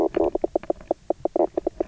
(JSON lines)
{"label": "biophony, knock croak", "recorder": "SoundTrap 300"}